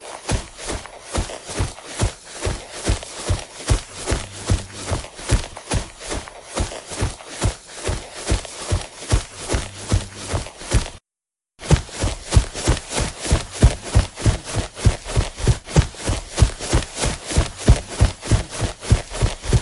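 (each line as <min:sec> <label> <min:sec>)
0:00.0 Someone jogging slowly across grass. 0:10.9
0:11.6 Footsteps running across grass. 0:19.6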